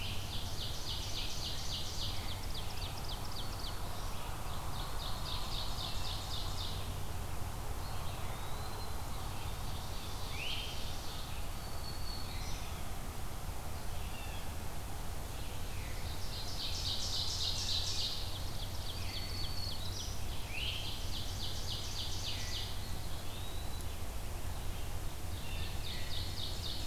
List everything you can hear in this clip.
Ovenbird, Red-eyed Vireo, Black-throated Green Warbler, Eastern Wood-Pewee, Great Crested Flycatcher, Blue Jay